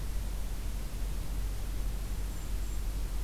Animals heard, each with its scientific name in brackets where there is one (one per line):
Golden-crowned Kinglet (Regulus satrapa)